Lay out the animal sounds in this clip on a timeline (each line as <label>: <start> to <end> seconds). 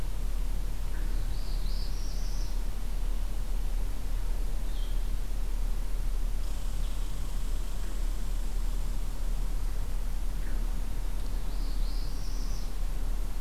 Northern Parula (Setophaga americana): 0.9 to 2.6 seconds
Red-eyed Vireo (Vireo olivaceus): 4.3 to 5.2 seconds
Northern Parula (Setophaga americana): 11.2 to 12.8 seconds